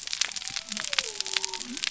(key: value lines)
label: biophony
recorder: SoundTrap 300